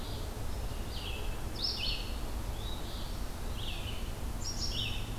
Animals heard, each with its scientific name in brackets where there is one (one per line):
Eastern Phoebe (Sayornis phoebe)
Red-eyed Vireo (Vireo olivaceus)